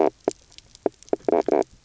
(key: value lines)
label: biophony, knock croak
recorder: SoundTrap 300